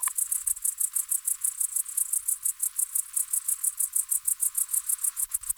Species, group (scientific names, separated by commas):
Tettigonia hispanica, Orthoptera